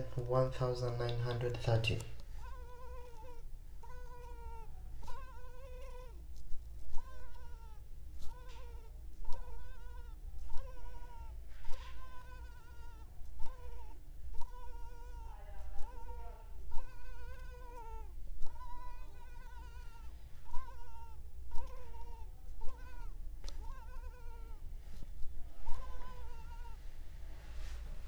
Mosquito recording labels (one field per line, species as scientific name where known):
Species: Culex pipiens complex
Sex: female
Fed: unfed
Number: one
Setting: cup